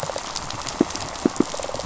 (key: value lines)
label: biophony, rattle response
recorder: SoundTrap 500